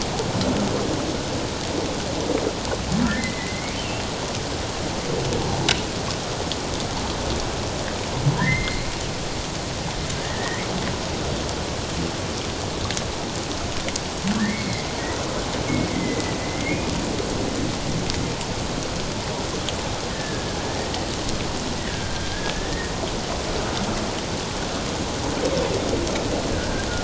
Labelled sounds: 3.2	3.8	humpback whale, 1.9 to 2.3 kHz
8.4	8.9	humpback whale, 1.6 to 4.2 kHz
10.2	10.7	humpback whale, 1.7 to 2.2 kHz
14.3	14.9	humpback whale, 1.6 to 2.3 kHz
15.9	16.8	humpback whale, 1.9 to 2.2 kHz
20.1	20.5	humpback whale, 1.6 to 1.9 kHz
21.8	22.9	humpback whale, 1.5 to 2.0 kHz
26.5	26.9	humpback whale, 1.4 to 1.7 kHz

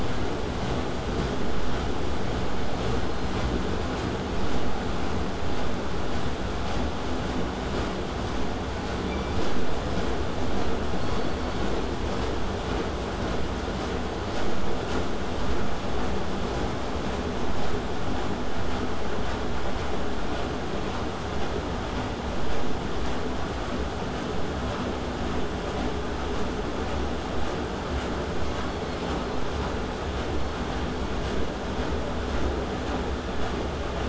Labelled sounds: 19.3	24.3	vessel noise, 0 to 8.0 kHz
28.7	29.1	killer whale, southern resident, K pod, call S16, 3.1 to 4.6 kHz
30.3	31.3	killer whale, southern resident, K pod, call S17, 4.2 to 4.6 kHz

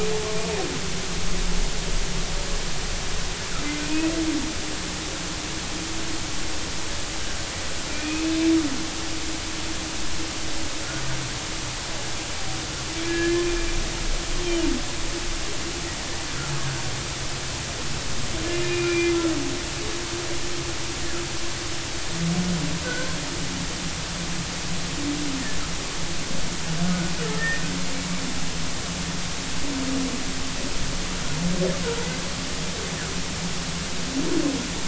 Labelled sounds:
3.8	4.1	humpback whale, 2.4 to 2.7 kHz
7.9	8.3	humpback whale, 2.3 to 2.7 kHz
12.9	13.5	humpback whale, 1.6 to 2.4 kHz
14.4	14.7	humpback whale, 2.8 to 3.2 kHz
18.6	19.1	humpback whale, 2.3 to 2.5 kHz
22.8	23.2	humpback whale, 1.4 to 1.6 kHz
26.8	27.1	humpback whale, 1.4 to 1.5 kHz
27.4	27.6	humpback whale, 1.8 to 2.0 kHz

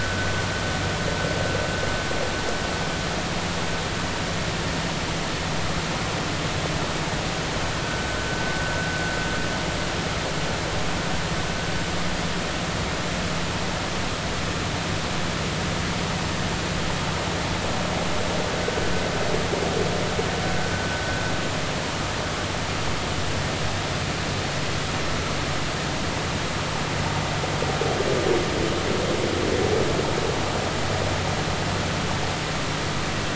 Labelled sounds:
7.8	8.1	vessel noise, 1.4 to 1.6 kHz

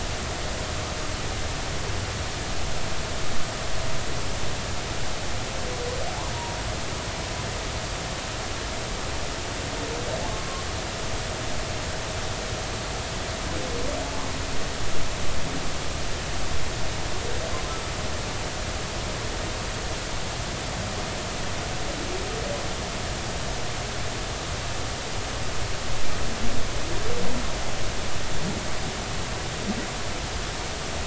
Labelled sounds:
10.3	10.6	humpback whale, 1.0 to 1.1 kHz

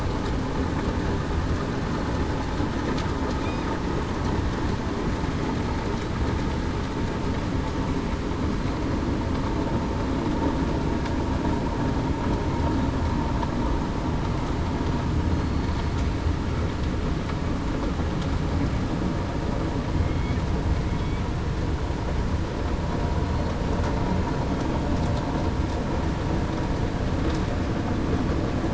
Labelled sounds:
15.3	15.8	killer whale, southern resident, 4.3 to 4.4 kHz
20.0	20.4	killer whale, southern resident, 2.1 to 2.3 kHz

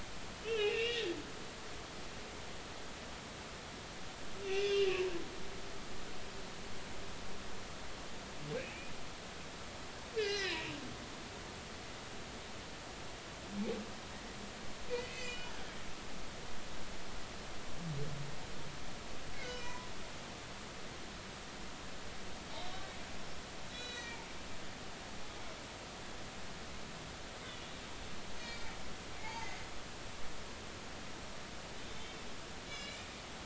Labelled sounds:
0.4	1.0	humpback whale, 2.2 to 3.2 kHz
4.4	5.7	humpback whale, 1.9 to 3.7 kHz
8.6	8.9	humpback whale, 2.2 to 2.9 kHz
10.2	10.8	humpback whale, 1.5 to 5.3 kHz
14.9	15.5	humpback whale, 1.9 to 4.7 kHz
19.4	19.9	humpback whale, 0.93 to 3.0 kHz
22.5	22.9	humpback whale, 3.5 to 4.0 kHz
23.7	24.2	humpback whale, 1.8 to 6.0 kHz
28.4	29.7	humpback whale, 0.83 to 4.4 kHz
31.8	32.1	humpback whale, 3.5 to 3.7 kHz
32.6	33.2	humpback whale, 1.7 to 5.2 kHz

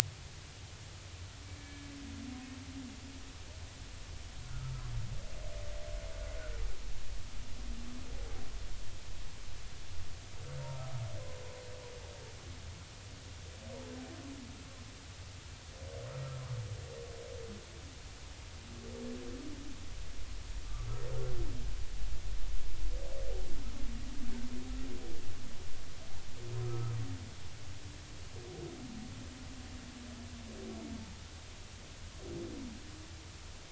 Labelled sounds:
1.6	1.9	humpback whale, 1.7 to 1.8 kHz
4.4	4.7	humpback whale, 1.2 to 1.5 kHz
26.6	27.0	humpback whale, 1.2 to 1.4 kHz

